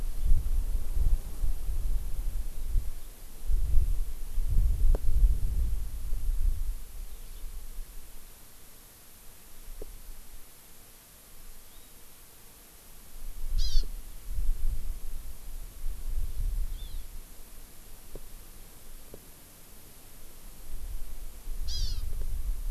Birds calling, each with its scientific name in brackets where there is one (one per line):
Hawaii Amakihi (Chlorodrepanis virens)